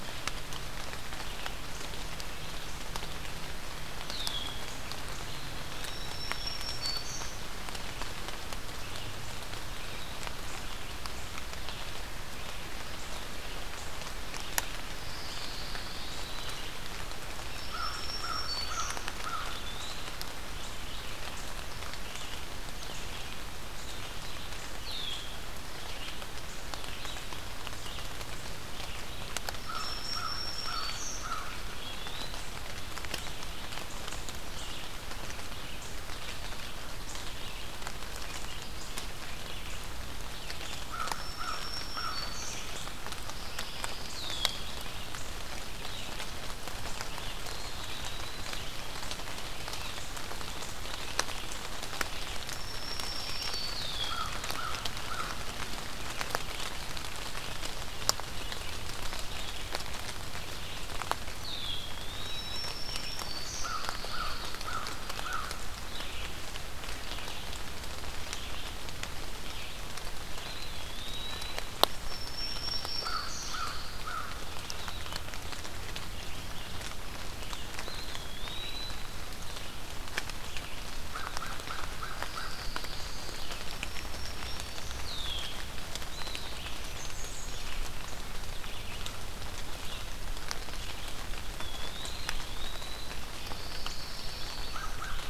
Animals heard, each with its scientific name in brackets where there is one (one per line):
Pine Warbler (Setophaga pinus)
Red-eyed Vireo (Vireo olivaceus)
Blackburnian Warbler (Setophaga fusca)
American Crow (Corvus brachyrhynchos)
Red-winged Blackbird (Agelaius phoeniceus)
Black-throated Green Warbler (Setophaga virens)
Eastern Wood-Pewee (Contopus virens)